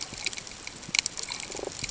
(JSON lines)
{"label": "ambient", "recorder": "HydroMoth"}